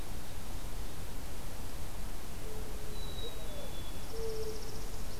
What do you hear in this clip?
Mourning Dove, Black-capped Chickadee, Northern Parula